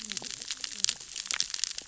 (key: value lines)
label: biophony, cascading saw
recorder: SoundTrap 600 or HydroMoth